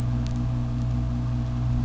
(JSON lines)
{"label": "biophony", "recorder": "SoundTrap 600"}